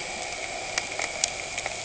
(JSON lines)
{"label": "anthrophony, boat engine", "recorder": "HydroMoth"}